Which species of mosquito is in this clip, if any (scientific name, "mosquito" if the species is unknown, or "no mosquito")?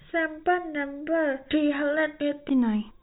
no mosquito